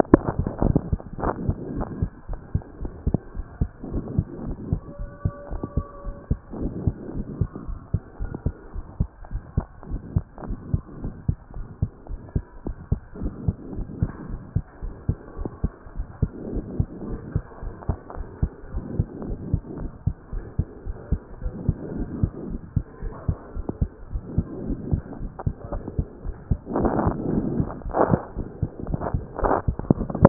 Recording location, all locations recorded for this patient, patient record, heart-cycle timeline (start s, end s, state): pulmonary valve (PV)
pulmonary valve (PV)+tricuspid valve (TV)+mitral valve (MV)
#Age: nan
#Sex: Female
#Height: nan
#Weight: nan
#Pregnancy status: True
#Murmur: Absent
#Murmur locations: nan
#Most audible location: nan
#Systolic murmur timing: nan
#Systolic murmur shape: nan
#Systolic murmur grading: nan
#Systolic murmur pitch: nan
#Systolic murmur quality: nan
#Diastolic murmur timing: nan
#Diastolic murmur shape: nan
#Diastolic murmur grading: nan
#Diastolic murmur pitch: nan
#Diastolic murmur quality: nan
#Outcome: Normal
#Campaign: 2014 screening campaign
0.00	1.96	unannotated
1.96	2.00	systole
2.00	2.10	S2
2.10	2.30	diastole
2.30	2.40	S1
2.40	2.54	systole
2.54	2.62	S2
2.62	2.82	diastole
2.82	2.92	S1
2.92	3.06	systole
3.06	3.18	S2
3.18	3.36	diastole
3.36	3.46	S1
3.46	3.60	systole
3.60	3.70	S2
3.70	3.92	diastole
3.92	4.04	S1
4.04	4.16	systole
4.16	4.24	S2
4.24	4.44	diastole
4.44	4.56	S1
4.56	4.70	systole
4.70	4.80	S2
4.80	5.00	diastole
5.00	5.10	S1
5.10	5.24	systole
5.24	5.32	S2
5.32	5.52	diastole
5.52	5.62	S1
5.62	5.76	systole
5.76	5.86	S2
5.86	6.06	diastole
6.06	6.16	S1
6.16	6.30	systole
6.30	6.38	S2
6.38	6.60	diastole
6.60	6.72	S1
6.72	6.84	systole
6.84	6.94	S2
6.94	7.14	diastole
7.14	7.26	S1
7.26	7.40	systole
7.40	7.48	S2
7.48	7.68	diastole
7.68	7.78	S1
7.78	7.92	systole
7.92	8.02	S2
8.02	8.20	diastole
8.20	8.30	S1
8.30	8.44	systole
8.44	8.54	S2
8.54	8.76	diastole
8.76	8.84	S1
8.84	8.98	systole
8.98	9.08	S2
9.08	9.32	diastole
9.32	9.42	S1
9.42	9.56	systole
9.56	9.66	S2
9.66	9.90	diastole
9.90	10.02	S1
10.02	10.14	systole
10.14	10.24	S2
10.24	10.46	diastole
10.46	10.58	S1
10.58	10.72	systole
10.72	10.82	S2
10.82	11.02	diastole
11.02	11.14	S1
11.14	11.28	systole
11.28	11.38	S2
11.38	11.56	diastole
11.56	11.66	S1
11.66	11.80	systole
11.80	11.90	S2
11.90	12.10	diastole
12.10	12.20	S1
12.20	12.34	systole
12.34	12.44	S2
12.44	12.66	diastole
12.66	12.76	S1
12.76	12.90	systole
12.90	13.00	S2
13.00	13.20	diastole
13.20	13.32	S1
13.32	13.46	systole
13.46	13.56	S2
13.56	13.76	diastole
13.76	13.86	S1
13.86	14.00	systole
14.00	14.10	S2
14.10	14.30	diastole
14.30	14.40	S1
14.40	14.54	systole
14.54	14.64	S2
14.64	14.84	diastole
14.84	14.94	S1
14.94	15.08	systole
15.08	15.18	S2
15.18	15.38	diastole
15.38	15.50	S1
15.50	15.62	systole
15.62	15.72	S2
15.72	15.96	diastole
15.96	16.06	S1
16.06	16.20	systole
16.20	16.30	S2
16.30	16.52	diastole
16.52	16.64	S1
16.64	16.78	systole
16.78	16.88	S2
16.88	17.08	diastole
17.08	17.20	S1
17.20	17.34	systole
17.34	17.44	S2
17.44	17.64	diastole
17.64	17.74	S1
17.74	17.88	systole
17.88	17.98	S2
17.98	18.18	diastole
18.18	18.28	S1
18.28	18.42	systole
18.42	18.52	S2
18.52	18.74	diastole
18.74	18.84	S1
18.84	18.96	systole
18.96	19.06	S2
19.06	19.26	diastole
19.26	19.38	S1
19.38	19.52	systole
19.52	19.62	S2
19.62	19.80	diastole
19.80	19.90	S1
19.90	20.06	systole
20.06	20.14	S2
20.14	20.34	diastole
20.34	20.44	S1
20.44	20.58	systole
20.58	20.68	S2
20.68	20.86	diastole
20.86	20.96	S1
20.96	21.10	systole
21.10	21.20	S2
21.20	21.42	diastole
21.42	21.54	S1
21.54	21.66	systole
21.66	21.76	S2
21.76	21.96	diastole
21.96	22.08	S1
22.08	22.20	systole
22.20	22.30	S2
22.30	22.48	diastole
22.48	22.60	S1
22.60	22.74	systole
22.74	22.84	S2
22.84	23.02	diastole
23.02	23.14	S1
23.14	23.28	systole
23.28	23.38	S2
23.38	23.56	diastole
23.56	23.66	S1
23.66	23.80	systole
23.80	23.90	S2
23.90	24.12	diastole
24.12	24.22	S1
24.22	24.36	systole
24.36	24.46	S2
24.46	24.66	diastole
24.66	24.78	S1
24.78	24.90	systole
24.90	25.02	S2
25.02	25.22	diastole
25.22	25.30	S1
25.30	25.46	systole
25.46	25.54	S2
25.54	25.72	diastole
25.72	25.84	S1
25.84	25.96	systole
25.96	26.06	S2
26.06	26.26	diastole
26.26	26.36	S1
26.36	26.40	systole
26.40	30.29	unannotated